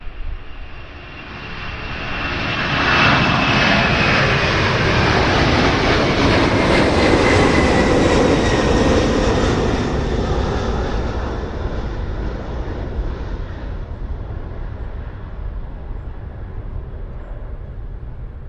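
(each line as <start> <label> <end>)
0.0 An aircraft takes off, producing a gradually increasing thrum that slowly fades away. 18.5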